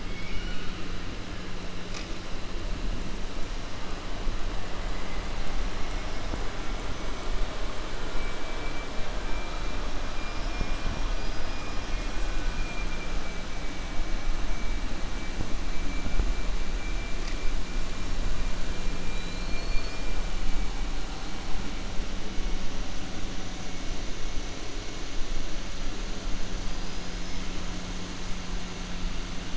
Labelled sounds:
0.0	0.8	killer whale, southern resident, 1.3 to 5.7 kHz
10.2	12.0	killer whale, southern resident, 4.1 to 5.9 kHz
19.0	20.0	killer whale, southern resident, 1.5 to 5.6 kHz

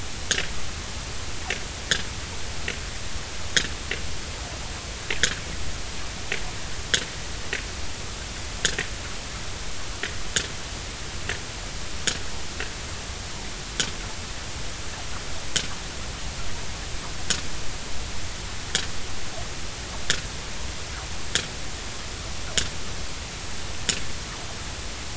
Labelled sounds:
5.2	5.4	sperm whale, 1.4 to 2.0 kHz

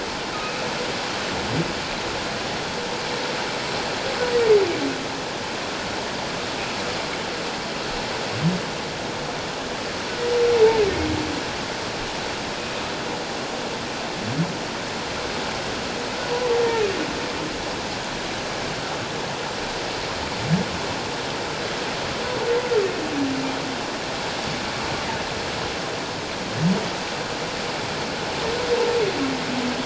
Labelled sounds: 0.3	0.6	humpback whale, 1.2 to 1.4 kHz

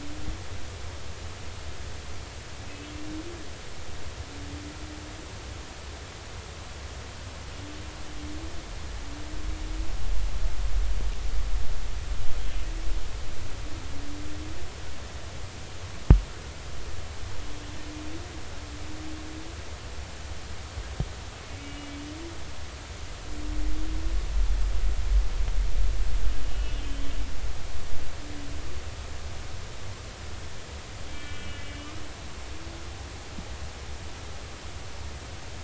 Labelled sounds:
21.5	21.9	humpback whale, 2.2 to 2.9 kHz
26.4	27.1	humpback whale, 2.8 to 3.2 kHz
31.1	31.8	humpback whale, 2.3 to 3.0 kHz

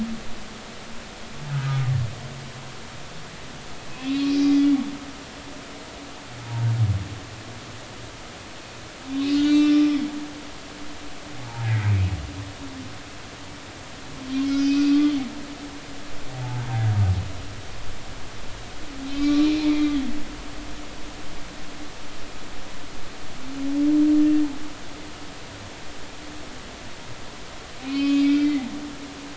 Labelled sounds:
1.5	1.8	humpback whale, 1.2 to 1.3 kHz
3.9	4.7	humpback whale, 2.0 to 2.8 kHz
9.3	10.0	humpback whale, 1.2 to 7.6 kHz
11.4	11.7	humpback whale, 0.80 to 0.99 kHz
14.4	15.2	humpback whale, 1.1 to 6.4 kHz
19.1	20.0	humpback whale, 1.1 to 3.9 kHz
27.8	28.7	humpback whale, 1.0 to 5.4 kHz

